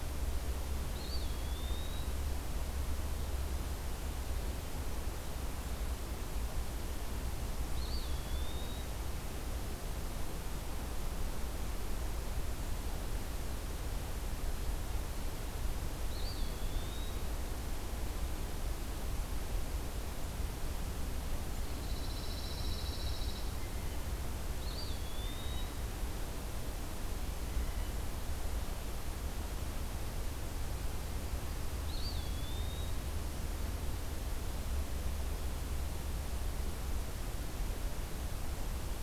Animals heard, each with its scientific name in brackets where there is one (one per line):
Eastern Wood-Pewee (Contopus virens)
Pine Warbler (Setophaga pinus)